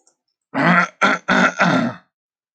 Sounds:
Throat clearing